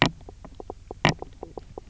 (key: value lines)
label: biophony, knock croak
recorder: SoundTrap 300